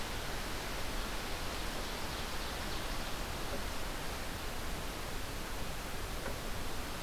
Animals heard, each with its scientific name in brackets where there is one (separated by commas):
Ovenbird (Seiurus aurocapilla)